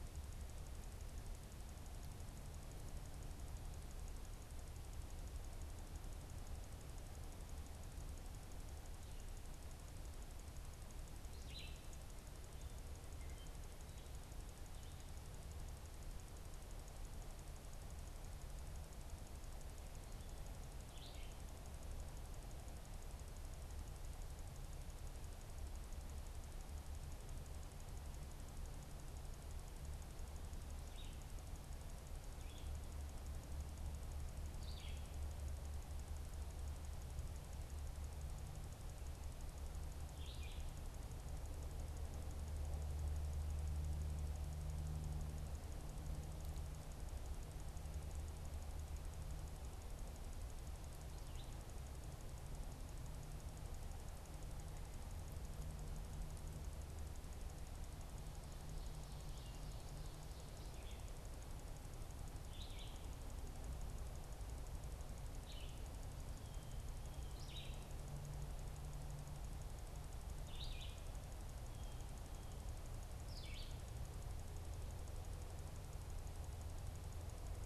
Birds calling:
Red-eyed Vireo (Vireo olivaceus)

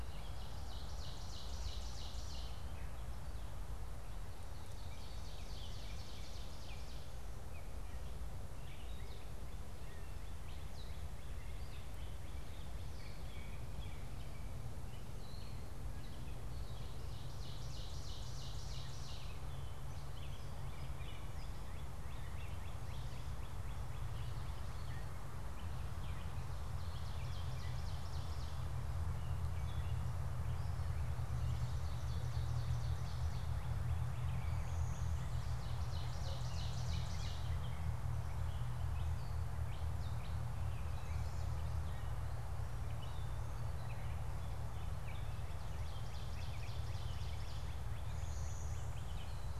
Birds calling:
Blue-winged Warbler (Vermivora cyanoptera), Northern Cardinal (Cardinalis cardinalis), Ovenbird (Seiurus aurocapilla), Gray Catbird (Dumetella carolinensis)

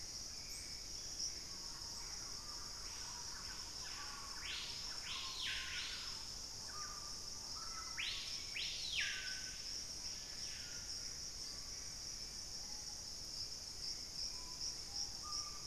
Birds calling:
Thrush-like Wren (Campylorhynchus turdinus), Hauxwell's Thrush (Turdus hauxwelli), Screaming Piha (Lipaugus vociferans), Gray Antbird (Cercomacra cinerascens), Black-faced Antthrush (Formicarius analis)

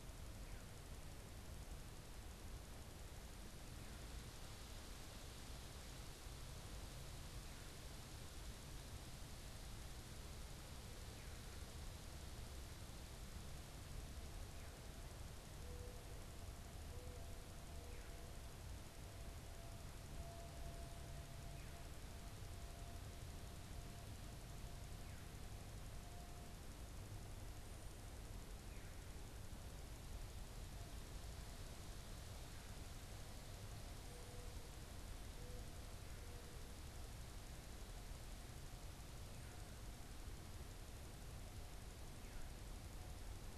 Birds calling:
Mourning Dove (Zenaida macroura)

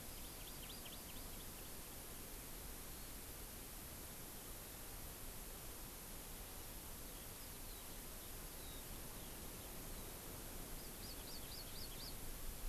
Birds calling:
Eurasian Skylark (Alauda arvensis), Hawaii Amakihi (Chlorodrepanis virens)

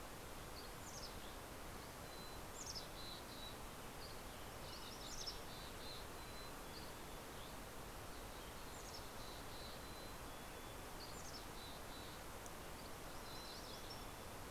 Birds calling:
Mountain Chickadee (Poecile gambeli), MacGillivray's Warbler (Geothlypis tolmiei), Dusky Flycatcher (Empidonax oberholseri)

